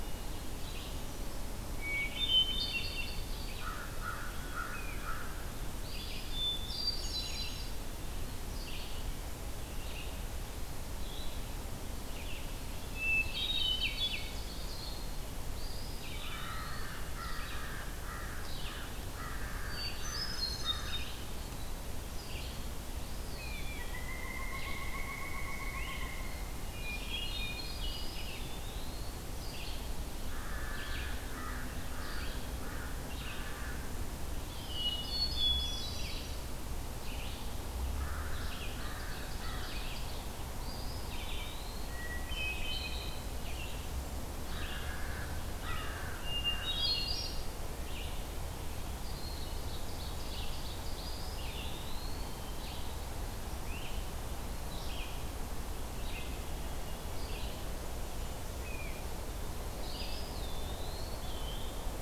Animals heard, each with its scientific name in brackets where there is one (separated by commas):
Pileated Woodpecker (Dryocopus pileatus), Great Crested Flycatcher (Myiarchus crinitus), Hermit Thrush (Catharus guttatus), Red-eyed Vireo (Vireo olivaceus), Eastern Wood-Pewee (Contopus virens), American Crow (Corvus brachyrhynchos), Ovenbird (Seiurus aurocapilla)